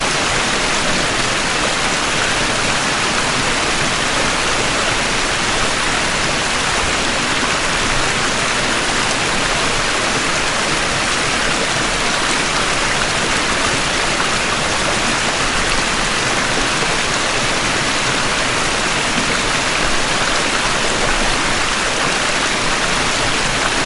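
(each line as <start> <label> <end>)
0.0 A loud and overwhelming waterfall sound. 23.9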